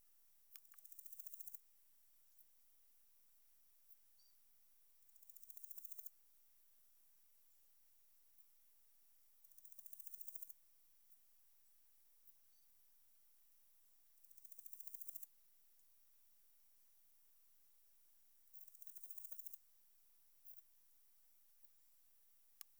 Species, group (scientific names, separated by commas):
Leptophyes punctatissima, Orthoptera